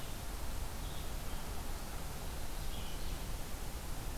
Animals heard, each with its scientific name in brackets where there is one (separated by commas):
Red-eyed Vireo (Vireo olivaceus)